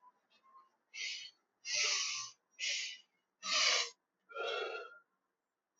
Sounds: Sigh